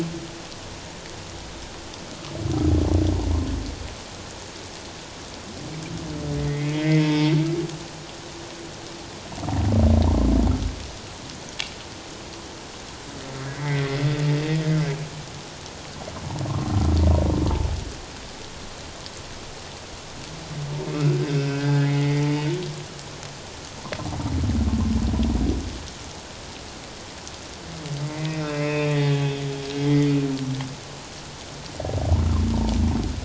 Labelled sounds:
6.4	7.3	humpback whale, 0.88 to 3.4 kHz
13.5	13.9	humpback whale, 1.8 to 2.3 kHz
20.8	22.5	humpback whale, 0.84 to 2.7 kHz
28.0	30.1	humpback whale, 1.9 to 3.7 kHz

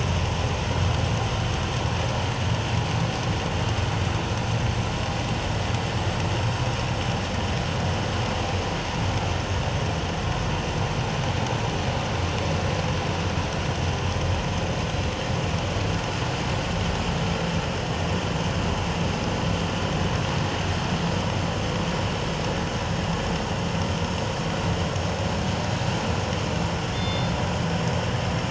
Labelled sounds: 26.9	27.3	killer whale, northern resident, G clan, 2.1 to 5.0 kHz

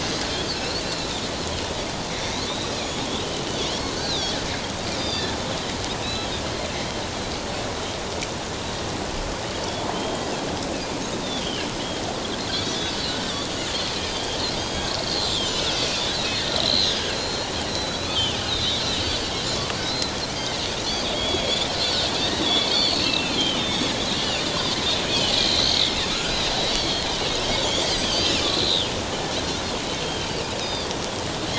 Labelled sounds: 0.8	1.1	Pacific white-sided dolphin, 3.8 to 4.2 kHz
2.2	3.1	Pacific white-sided dolphin, 2.3 to 6.9 kHz
3.9	4.4	Pacific white-sided dolphin, 3.2 to 5.1 kHz
5.0	5.7	Pacific white-sided dolphin, 3.4 to 5.1 kHz
6.0	6.3	Pacific white-sided dolphin, 2.5 to 4.1 kHz
9.9	10.3	Pacific white-sided dolphin, 3.0 to 3.3 kHz
11.2	11.7	Pacific white-sided dolphin, 2.6 to 3.7 kHz
12.5	13.5	Pacific white-sided dolphin, 3.1 to 4.8 kHz
14.1	19.3	Pacific white-sided dolphin, 2.4 to 5.3 kHz
19.8	20.6	Pacific white-sided dolphin, 2.0 to 4.2 kHz
20.8	24.5	Pacific white-sided dolphin, 2.3 to 4.8 kHz
25.4	27.1	Pacific white-sided dolphin, 2.0 to 4.9 kHz
27.6	28.9	Pacific white-sided dolphin, 2.3 to 6.3 kHz
30.0	30.9	Pacific white-sided dolphin, 3.0 to 5.1 kHz

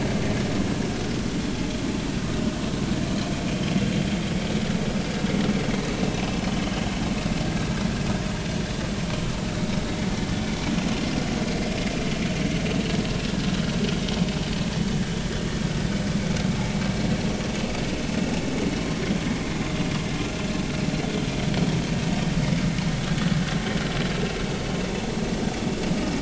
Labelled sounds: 23.0	23.3	vessel noise, 3.3 to 3.5 kHz

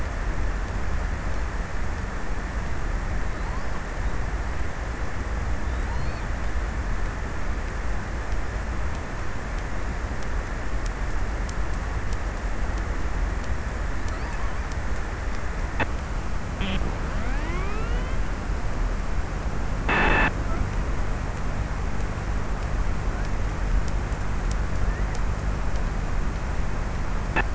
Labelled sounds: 5.2	7.3	killer whale, offshore, 0.41 to 5.2 kHz
16.2	20.7	abiotic sound, 0 to 4.9 kHz

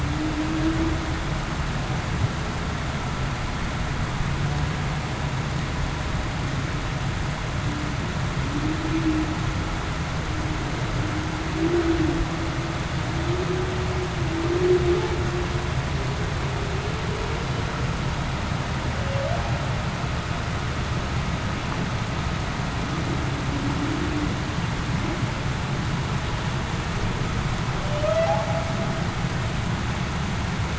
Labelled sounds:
0.0	0.6	humpback whale, 0.26 to 0.33 kHz
8.9	9.2	humpback whale, 0.28 to 0.38 kHz
18.9	19.4	humpback whale, 0.52 to 0.73 kHz
27.8	28.5	humpback whale, 0.52 to 0.70 kHz

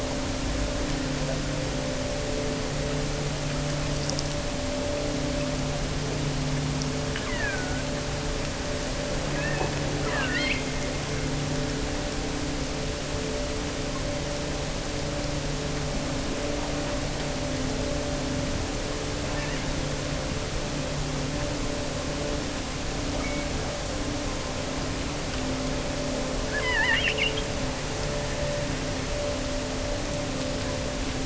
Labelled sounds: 7.2	7.9	killer whale, offshore, 0.73 to 3.3 kHz
9.2	11.2	killer whale, offshore, 1.4 to 5.5 kHz
19.2	19.9	killer whale, offshore, 1.5 to 4.0 kHz
26.4	27.6	killer whale, offshore, 0.75 to 4.0 kHz

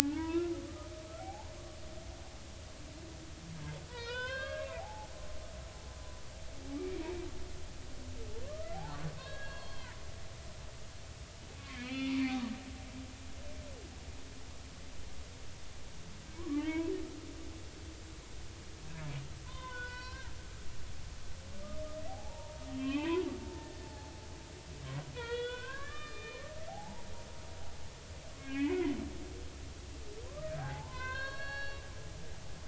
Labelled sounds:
0.0	0.5	humpback whale, 1.2 to 2.9 kHz
1.2	1.5	humpback whale, 0.80 to 0.93 kHz
3.9	5.1	humpback whale, 0.80 to 5.4 kHz
6.8	7.1	humpback whale, 2.2 to 2.5 kHz
8.4	9.9	humpback whale, 0.99 to 4.4 kHz
11.5	12.5	humpback whale, 1.1 to 4.3 kHz
16.4	16.9	humpback whale, 0.83 to 3.3 kHz
19.5	20.3	humpback whale, 0.93 to 5.7 kHz
22.1	24.1	humpback whale, 0.80 to 3.3 kHz
25.1	27.0	humpback whale, 0.80 to 4.4 kHz
28.3	29.0	humpback whale, 1.1 to 2.9 kHz
30.2	31.8	humpback whale, 0.80 to 5.6 kHz

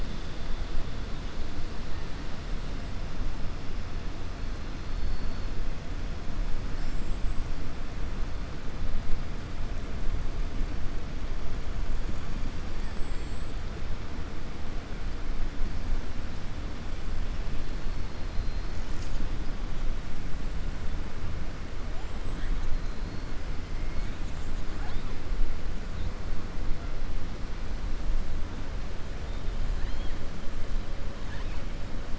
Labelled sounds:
29.7	30.2	killer whale, 1.7 to 5.2 kHz
31.2	31.6	killer whale, 0.94 to 4.7 kHz

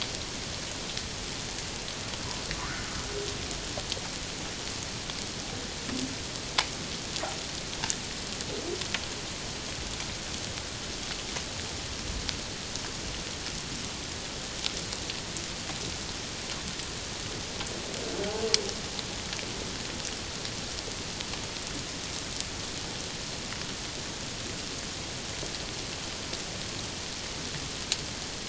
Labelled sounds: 2.6	2.9	humpback whale, 0.94 to 1.6 kHz

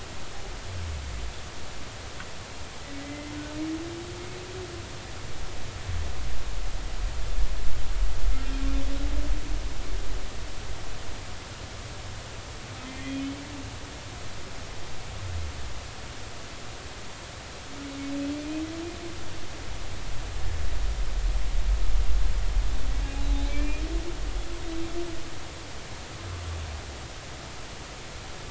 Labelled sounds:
3.0	3.3	humpback whale, 2.0 to 2.1 kHz
12.8	13.3	humpback whale, 2.0 to 2.5 kHz
18.4	18.6	humpback whale, 2.3 to 2.6 kHz
23.5	23.8	humpback whale, 2.2 to 2.5 kHz

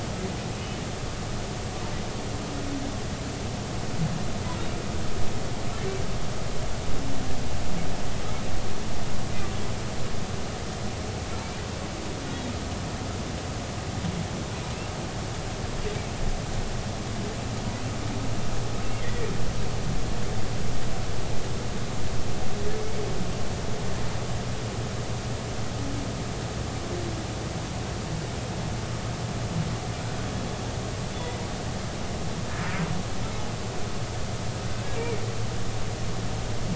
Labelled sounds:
18.9	19.3	humpback whale, 1.8 to 2.2 kHz
34.9	35.2	humpback whale, 2.1 to 2.4 kHz

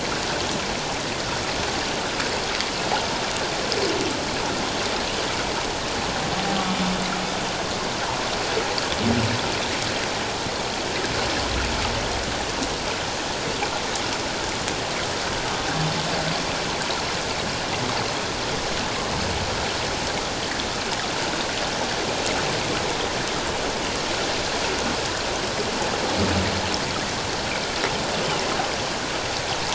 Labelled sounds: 6.6	6.9	humpback whale, 3.4 to 3.6 kHz

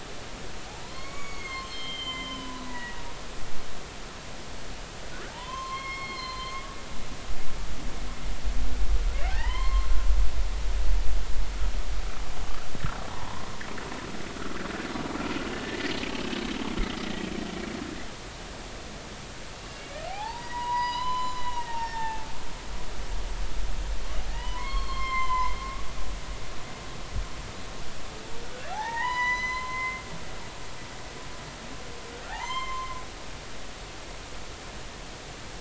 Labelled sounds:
0.8	3.1	humpback whale, 0.90 to 7.3 kHz
5.3	6.7	humpback whale, 0.83 to 5.4 kHz
9.2	9.9	humpback whale, 0.80 to 4.3 kHz
13.1	13.5	humpback whale, 0.83 to 1.1 kHz
14.3	14.6	humpback whale, 1.2 to 1.5 kHz
15.6	15.9	humpback whale, 1.7 to 2.0 kHz
19.6	22.3	humpback whale, 0.80 to 5.6 kHz
24.3	25.6	humpback whale, 0.90 to 4.4 kHz
28.7	30.0	humpback whale, 0.80 to 6.1 kHz
32.3	33.0	humpback whale, 0.80 to 7.4 kHz

